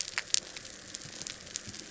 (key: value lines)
label: anthrophony, boat engine
recorder: SoundTrap 300